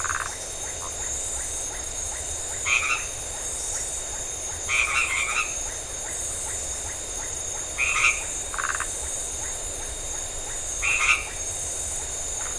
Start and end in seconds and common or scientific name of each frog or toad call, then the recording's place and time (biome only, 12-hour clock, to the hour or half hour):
0.0	12.5	Iporanga white-lipped frog
2.4	5.8	white-edged tree frog
7.7	9.0	white-edged tree frog
8.5	8.9	Phyllomedusa distincta
10.8	11.6	white-edged tree frog
12.4	12.5	Phyllomedusa distincta
Atlantic Forest, 9:30pm